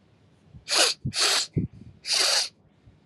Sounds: Sniff